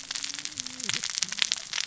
{"label": "biophony, cascading saw", "recorder": "SoundTrap 600 or HydroMoth"}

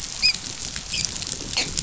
{"label": "biophony, dolphin", "recorder": "SoundTrap 500"}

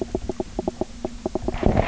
{"label": "biophony, knock croak", "recorder": "SoundTrap 300"}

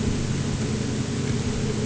{"label": "anthrophony, boat engine", "recorder": "HydroMoth"}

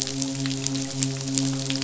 {"label": "biophony, midshipman", "recorder": "SoundTrap 500"}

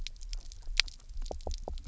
{"label": "biophony, knock", "recorder": "SoundTrap 300"}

